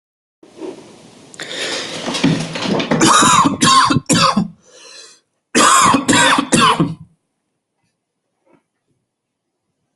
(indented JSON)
{
  "expert_labels": [
    {
      "quality": "poor",
      "cough_type": "dry",
      "dyspnea": false,
      "wheezing": false,
      "stridor": false,
      "choking": false,
      "congestion": false,
      "nothing": true,
      "diagnosis": "upper respiratory tract infection",
      "severity": "unknown"
    }
  ],
  "age": 28,
  "gender": "male",
  "respiratory_condition": false,
  "fever_muscle_pain": false,
  "status": "healthy"
}